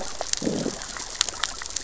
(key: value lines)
label: biophony, growl
recorder: SoundTrap 600 or HydroMoth